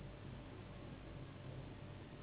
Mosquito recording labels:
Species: Anopheles gambiae s.s.; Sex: female; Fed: unfed; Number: one; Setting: insect culture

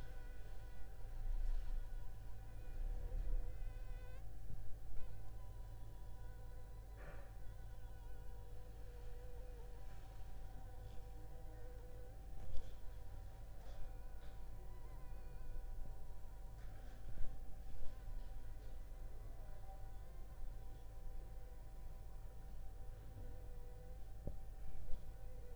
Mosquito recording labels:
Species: Anopheles funestus s.s.; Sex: female; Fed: unfed; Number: one; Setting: cup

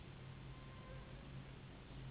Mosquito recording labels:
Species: Anopheles gambiae s.s.; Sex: female; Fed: unfed; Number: one; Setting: insect culture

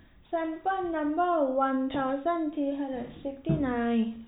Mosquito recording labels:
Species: no mosquito; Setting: cup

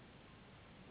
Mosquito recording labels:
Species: Anopheles gambiae s.s.; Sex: female; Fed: unfed; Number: one; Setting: insect culture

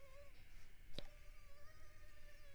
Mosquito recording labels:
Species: Culex pipiens complex; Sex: female; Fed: unfed; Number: one; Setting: cup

